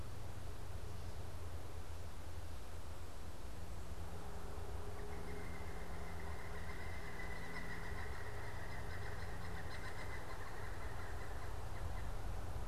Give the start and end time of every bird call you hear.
[4.57, 12.27] Pileated Woodpecker (Dryocopus pileatus)

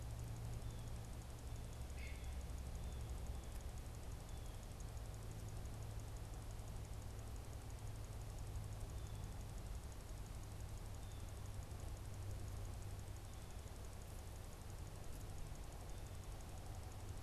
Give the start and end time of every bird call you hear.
[1.75, 2.35] unidentified bird

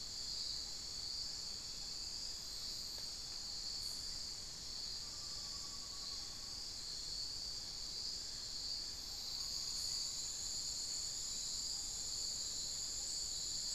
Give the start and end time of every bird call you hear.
[4.87, 10.27] Amazonian Pygmy-Owl (Glaucidium hardyi)

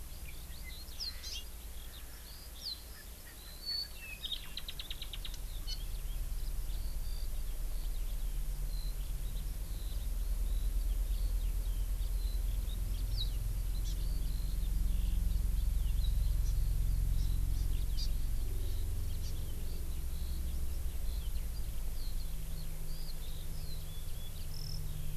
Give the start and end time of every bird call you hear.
[0.00, 25.17] Eurasian Skylark (Alauda arvensis)
[1.20, 1.50] Hawaii Amakihi (Chlorodrepanis virens)
[13.80, 14.00] Hawaii Amakihi (Chlorodrepanis virens)
[16.40, 16.50] Hawaii Amakihi (Chlorodrepanis virens)
[17.20, 17.70] Hawaii Amakihi (Chlorodrepanis virens)
[18.00, 18.10] Hawaii Amakihi (Chlorodrepanis virens)
[19.20, 19.30] Hawaii Amakihi (Chlorodrepanis virens)

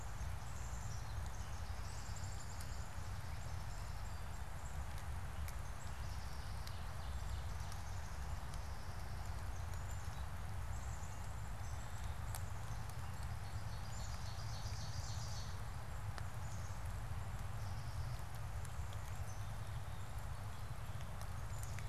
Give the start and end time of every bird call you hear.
[0.00, 13.00] Black-capped Chickadee (Poecile atricapillus)
[6.10, 8.30] Ovenbird (Seiurus aurocapilla)
[13.10, 15.80] Ovenbird (Seiurus aurocapilla)
[16.20, 16.90] Black-capped Chickadee (Poecile atricapillus)
[17.40, 21.80] Black-capped Chickadee (Poecile atricapillus)

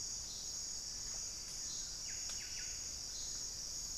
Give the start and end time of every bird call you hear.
[0.00, 3.08] Pale-vented Pigeon (Patagioenas cayennensis)
[0.58, 3.38] unidentified bird
[1.58, 3.08] Buff-breasted Wren (Cantorchilus leucotis)

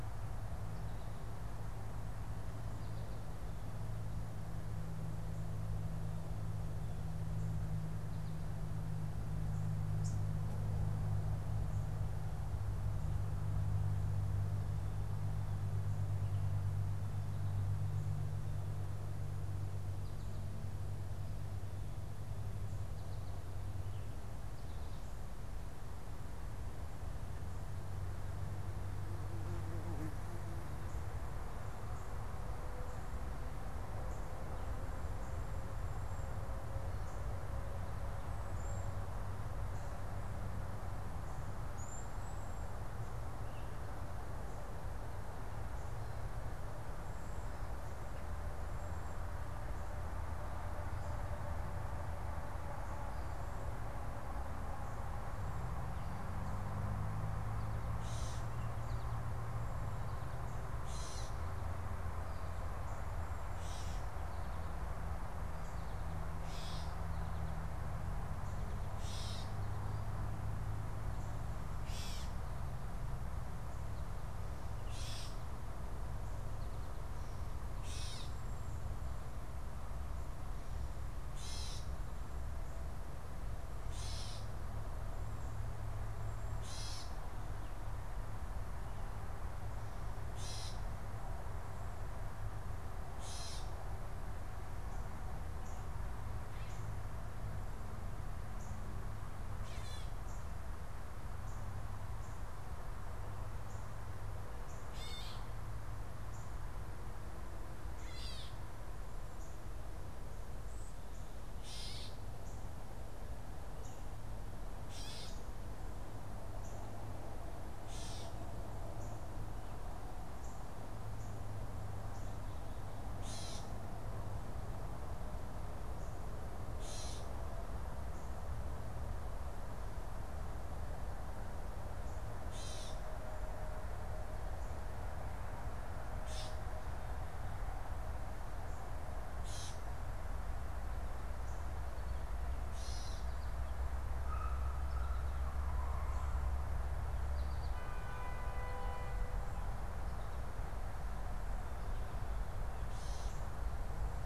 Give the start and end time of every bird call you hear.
[0.00, 1.52] American Goldfinch (Spinus tristis)
[9.82, 10.32] unidentified bird
[35.82, 49.82] Cedar Waxwing (Bombycilla cedrorum)
[56.32, 60.52] American Goldfinch (Spinus tristis)
[57.92, 108.72] Gray Catbird (Dumetella carolinensis)
[108.92, 121.72] Northern Cardinal (Cardinalis cardinalis)
[111.62, 154.25] Gray Catbird (Dumetella carolinensis)

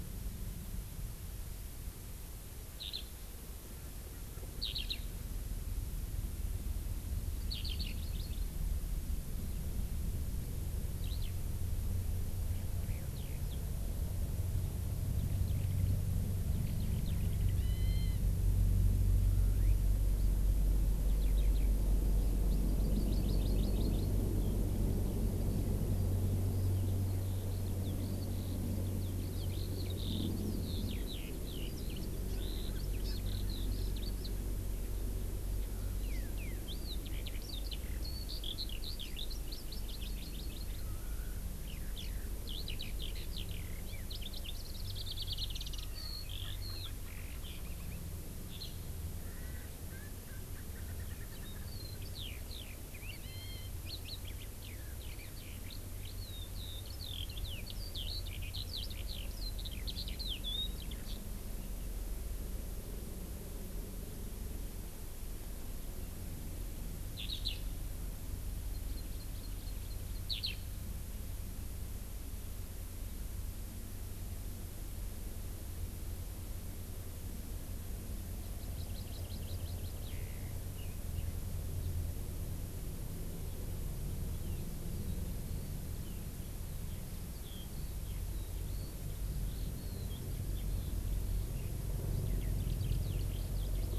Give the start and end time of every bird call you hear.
[2.76, 3.06] Eurasian Skylark (Alauda arvensis)
[4.56, 4.96] Eurasian Skylark (Alauda arvensis)
[7.36, 8.56] Hawaii Amakihi (Chlorodrepanis virens)
[7.46, 7.96] Eurasian Skylark (Alauda arvensis)
[10.96, 11.26] Eurasian Skylark (Alauda arvensis)
[13.16, 13.36] Eurasian Skylark (Alauda arvensis)
[16.46, 18.26] Eurasian Skylark (Alauda arvensis)
[21.06, 21.66] Eurasian Skylark (Alauda arvensis)
[22.76, 24.06] Hawaii Amakihi (Chlorodrepanis virens)
[26.46, 34.26] Eurasian Skylark (Alauda arvensis)
[33.06, 33.16] Hawaii Amakihi (Chlorodrepanis virens)
[35.96, 39.26] Eurasian Skylark (Alauda arvensis)
[39.26, 40.96] Hawaii Amakihi (Chlorodrepanis virens)
[41.56, 48.06] Eurasian Skylark (Alauda arvensis)
[48.46, 48.66] Eurasian Skylark (Alauda arvensis)
[49.16, 51.76] Erckel's Francolin (Pternistis erckelii)
[51.06, 61.16] Eurasian Skylark (Alauda arvensis)
[67.16, 67.66] Eurasian Skylark (Alauda arvensis)
[68.66, 70.16] Hawaii Amakihi (Chlorodrepanis virens)
[70.26, 70.56] Eurasian Skylark (Alauda arvensis)
[78.36, 80.06] Hawaii Amakihi (Chlorodrepanis virens)
[84.26, 93.98] Eurasian Skylark (Alauda arvensis)

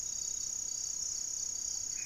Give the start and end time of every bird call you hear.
[0.00, 2.06] Black-faced Antthrush (Formicarius analis)
[0.00, 2.06] Ruddy Pigeon (Patagioenas subvinacea)

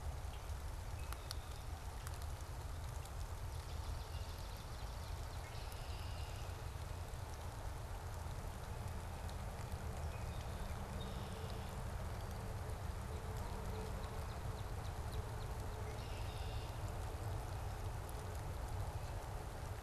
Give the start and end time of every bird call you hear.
[0.81, 1.71] Red-winged Blackbird (Agelaius phoeniceus)
[3.51, 5.41] Swamp Sparrow (Melospiza georgiana)
[3.61, 6.51] Northern Cardinal (Cardinalis cardinalis)
[5.31, 6.51] Red-winged Blackbird (Agelaius phoeniceus)
[10.11, 11.71] Red-winged Blackbird (Agelaius phoeniceus)
[13.31, 16.41] Northern Cardinal (Cardinalis cardinalis)
[15.81, 16.71] Red-winged Blackbird (Agelaius phoeniceus)

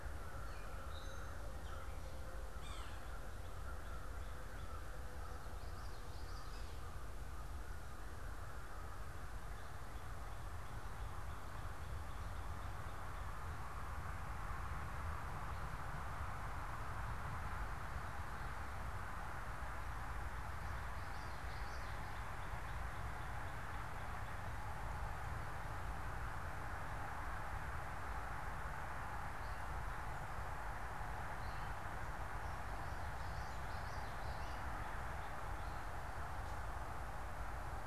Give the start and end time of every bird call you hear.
[0.00, 2.27] Gray Catbird (Dumetella carolinensis)
[0.00, 10.97] American Crow (Corvus brachyrhynchos)
[2.37, 3.07] Yellow-bellied Sapsucker (Sphyrapicus varius)
[5.47, 7.17] Common Yellowthroat (Geothlypis trichas)
[20.77, 22.37] Common Yellowthroat (Geothlypis trichas)
[30.97, 37.87] Gray Catbird (Dumetella carolinensis)
[32.87, 34.67] Common Yellowthroat (Geothlypis trichas)

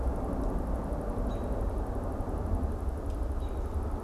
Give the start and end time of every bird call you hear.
[1.17, 1.57] American Robin (Turdus migratorius)
[3.27, 3.67] American Robin (Turdus migratorius)

